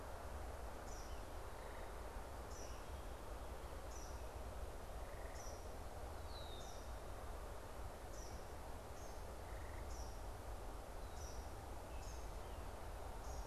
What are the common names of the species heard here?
Eastern Kingbird, Red-winged Blackbird